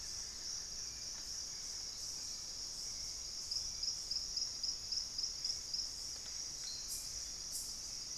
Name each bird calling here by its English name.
Buff-throated Woodcreeper, Hauxwell's Thrush